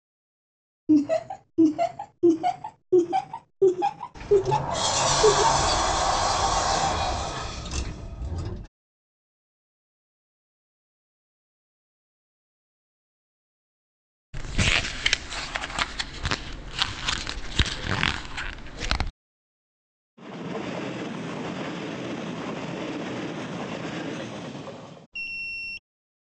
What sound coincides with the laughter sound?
sliding door